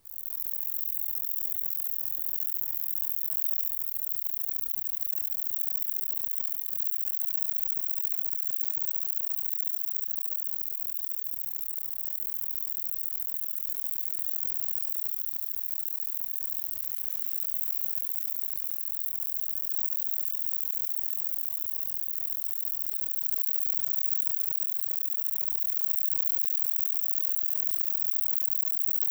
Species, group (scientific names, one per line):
Conocephalus fuscus
Orthoptera